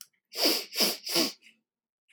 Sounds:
Sniff